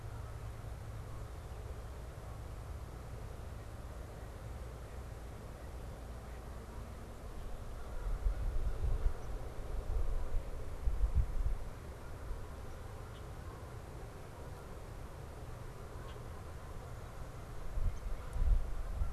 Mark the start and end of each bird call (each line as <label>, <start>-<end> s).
Canada Goose (Branta canadensis), 0.0-11.4 s
Downy Woodpecker (Dryobates pubescens), 9.2-9.3 s
Downy Woodpecker (Dryobates pubescens), 12.6-12.8 s
Red-winged Blackbird (Agelaius phoeniceus), 13.0-13.3 s
Red-winged Blackbird (Agelaius phoeniceus), 16.0-16.3 s
Downy Woodpecker (Dryobates pubescens), 17.8-18.1 s